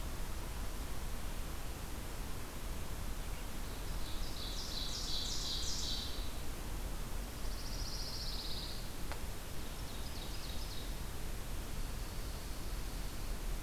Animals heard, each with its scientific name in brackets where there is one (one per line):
Ovenbird (Seiurus aurocapilla)
Pine Warbler (Setophaga pinus)
Dark-eyed Junco (Junco hyemalis)